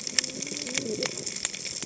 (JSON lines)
{"label": "biophony, cascading saw", "recorder": "HydroMoth"}